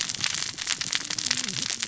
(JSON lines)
{"label": "biophony, cascading saw", "recorder": "SoundTrap 600 or HydroMoth"}